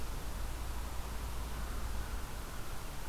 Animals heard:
forest ambience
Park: Marsh-Billings-Rockefeller National Historical Park